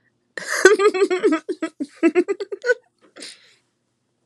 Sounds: Laughter